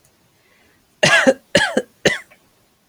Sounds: Cough